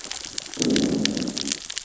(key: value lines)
label: biophony, growl
recorder: SoundTrap 600 or HydroMoth